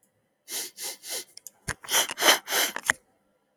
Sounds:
Sniff